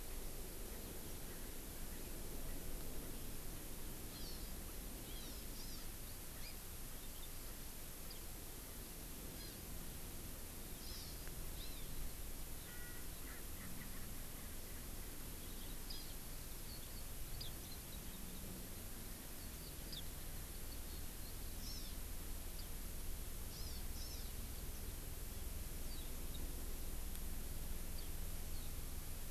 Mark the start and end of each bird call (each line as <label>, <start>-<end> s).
Hawaii Amakihi (Chlorodrepanis virens), 4.1-4.5 s
Hawaii Amakihi (Chlorodrepanis virens), 5.0-5.9 s
Hawaii Amakihi (Chlorodrepanis virens), 9.3-9.6 s
Hawaii Amakihi (Chlorodrepanis virens), 10.8-11.2 s
Hawaii Amakihi (Chlorodrepanis virens), 11.5-11.9 s
Erckel's Francolin (Pternistis erckelii), 12.6-14.8 s
Hawaii Amakihi (Chlorodrepanis virens), 21.6-22.0 s
Hawaii Amakihi (Chlorodrepanis virens), 23.5-24.3 s